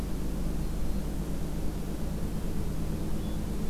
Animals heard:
Black-throated Green Warbler (Setophaga virens)

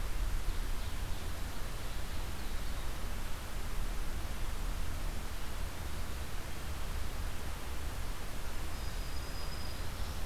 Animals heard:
Black-throated Green Warbler (Setophaga virens), Ovenbird (Seiurus aurocapilla)

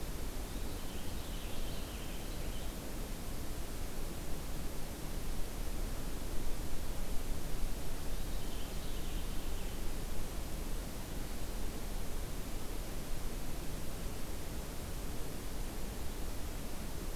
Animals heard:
Purple Finch (Haemorhous purpureus)

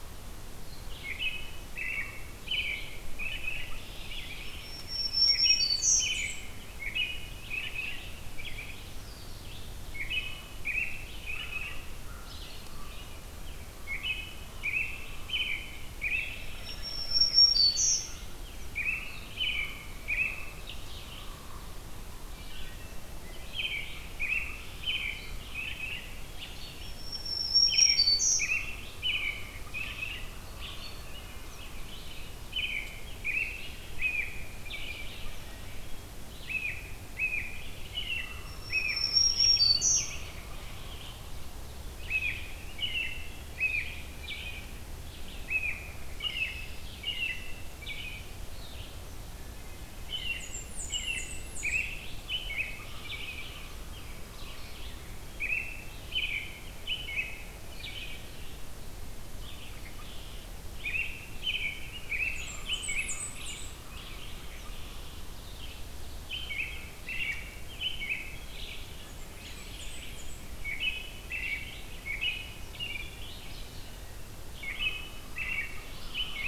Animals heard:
Red-winged Blackbird (Agelaius phoeniceus), Wood Thrush (Hylocichla mustelina), American Crow (Corvus brachyrhynchos), Blackburnian Warbler (Setophaga fusca), American Robin (Turdus migratorius), Black-throated Green Warbler (Setophaga virens), Red-eyed Vireo (Vireo olivaceus), Common Raven (Corvus corax)

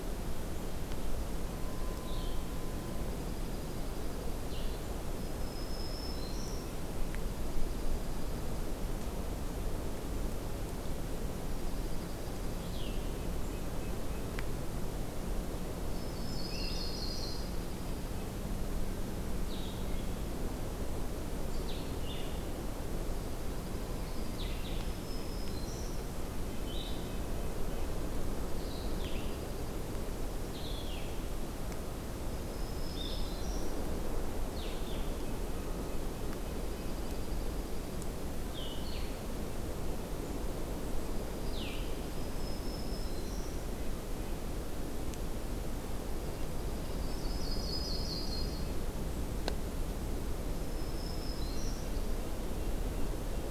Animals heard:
Blue-headed Vireo (Vireo solitarius), Yellow-rumped Warbler (Setophaga coronata), Red-breasted Nuthatch (Sitta canadensis), Black-throated Green Warbler (Setophaga virens), Dark-eyed Junco (Junco hyemalis)

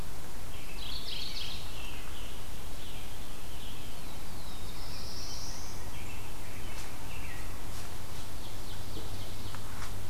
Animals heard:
American Robin (Turdus migratorius), Ovenbird (Seiurus aurocapilla), Black-throated Blue Warbler (Setophaga caerulescens), Mourning Warbler (Geothlypis philadelphia)

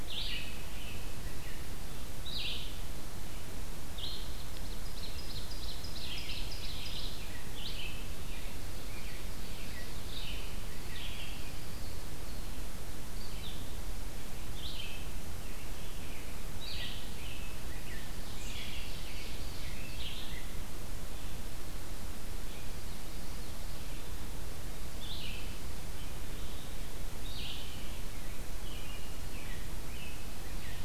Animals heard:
Red-eyed Vireo (Vireo olivaceus), Ovenbird (Seiurus aurocapilla), American Robin (Turdus migratorius)

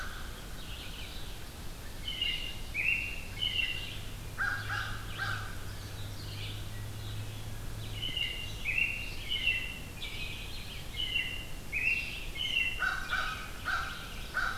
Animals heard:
Red-eyed Vireo (Vireo olivaceus), American Crow (Corvus brachyrhynchos), American Robin (Turdus migratorius)

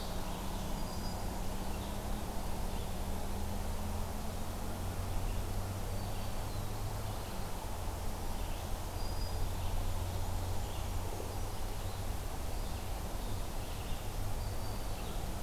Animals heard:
Red-eyed Vireo (Vireo olivaceus), Black-throated Blue Warbler (Setophaga caerulescens), Black-throated Green Warbler (Setophaga virens)

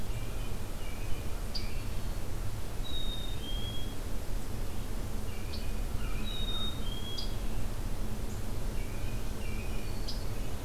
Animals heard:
Black-throated Green Warbler (Setophaga virens), American Robin (Turdus migratorius), Scarlet Tanager (Piranga olivacea), American Crow (Corvus brachyrhynchos), Black-capped Chickadee (Poecile atricapillus)

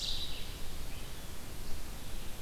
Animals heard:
Red-eyed Vireo (Vireo olivaceus), Brown Creeper (Certhia americana)

